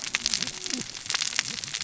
{"label": "biophony, cascading saw", "recorder": "SoundTrap 600 or HydroMoth"}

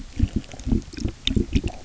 {"label": "geophony, waves", "recorder": "SoundTrap 300"}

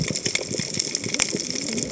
{"label": "biophony, cascading saw", "recorder": "HydroMoth"}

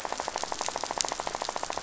{"label": "biophony, rattle", "recorder": "SoundTrap 500"}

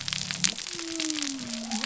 {"label": "biophony", "recorder": "SoundTrap 300"}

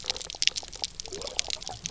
{"label": "biophony, pulse", "recorder": "SoundTrap 300"}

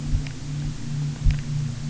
{"label": "anthrophony, boat engine", "recorder": "SoundTrap 300"}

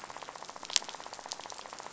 {"label": "biophony, rattle", "recorder": "SoundTrap 500"}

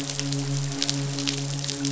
{"label": "biophony, midshipman", "recorder": "SoundTrap 500"}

